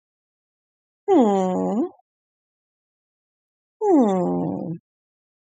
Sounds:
Sigh